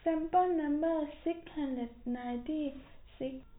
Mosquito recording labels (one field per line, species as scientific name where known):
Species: no mosquito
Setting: cup